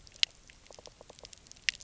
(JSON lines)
{"label": "biophony", "recorder": "SoundTrap 300"}